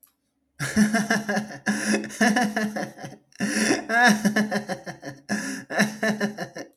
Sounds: Laughter